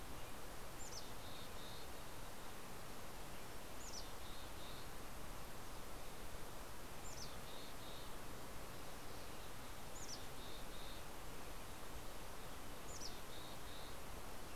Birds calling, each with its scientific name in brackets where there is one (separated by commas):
Mountain Chickadee (Poecile gambeli), American Robin (Turdus migratorius)